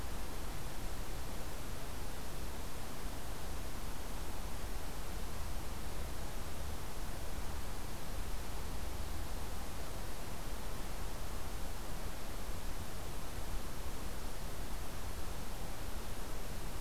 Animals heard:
forest ambience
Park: Acadia National Park